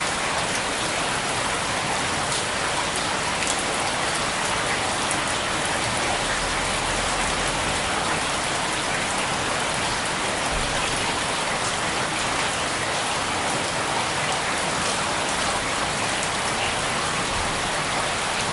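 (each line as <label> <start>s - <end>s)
A loud, consistent stream of water flowing. 0.0s - 18.5s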